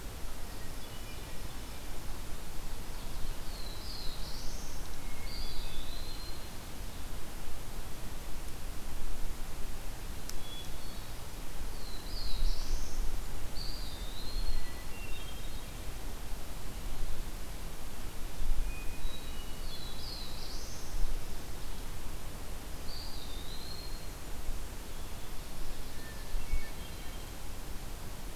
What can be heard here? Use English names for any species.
Hermit Thrush, Black-throated Blue Warbler, Eastern Wood-Pewee